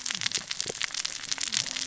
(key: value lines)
label: biophony, cascading saw
recorder: SoundTrap 600 or HydroMoth